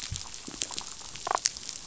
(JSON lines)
{"label": "biophony, damselfish", "recorder": "SoundTrap 500"}